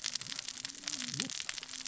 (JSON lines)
{"label": "biophony, cascading saw", "recorder": "SoundTrap 600 or HydroMoth"}